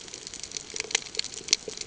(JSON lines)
{"label": "ambient", "recorder": "HydroMoth"}